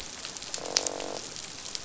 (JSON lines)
{"label": "biophony, croak", "recorder": "SoundTrap 500"}